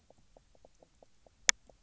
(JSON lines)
{"label": "biophony, knock croak", "recorder": "SoundTrap 300"}